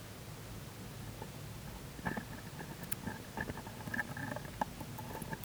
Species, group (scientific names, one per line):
Poecilimon hamatus
Orthoptera